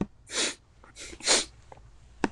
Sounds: Sniff